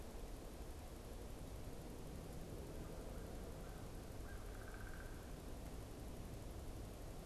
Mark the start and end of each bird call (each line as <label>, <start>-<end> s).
American Crow (Corvus brachyrhynchos), 2.6-4.5 s
Downy Woodpecker (Dryobates pubescens), 4.3-5.5 s